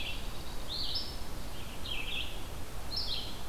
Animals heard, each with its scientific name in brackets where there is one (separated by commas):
Dark-eyed Junco (Junco hyemalis), Red-eyed Vireo (Vireo olivaceus)